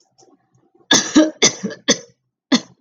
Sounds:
Cough